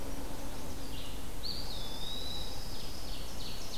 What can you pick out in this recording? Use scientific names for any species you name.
Setophaga pensylvanica, Vireo olivaceus, Contopus virens, Junco hyemalis, Seiurus aurocapilla